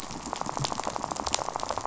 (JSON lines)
{"label": "biophony, rattle", "recorder": "SoundTrap 500"}